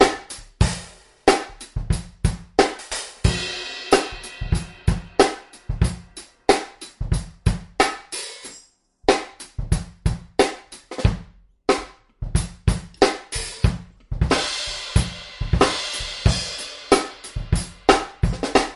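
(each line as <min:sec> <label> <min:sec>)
0:00.0 Rhythmic drumming sounds. 0:18.8
0:03.2 The sound of a drum bell gradually decreases and fades. 0:04.9
0:14.4 The sound of a drum bell gradually decreases and fades. 0:16.9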